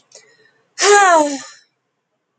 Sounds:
Sigh